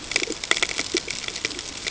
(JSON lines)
{"label": "ambient", "recorder": "HydroMoth"}